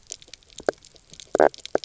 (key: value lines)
label: biophony, knock croak
recorder: SoundTrap 300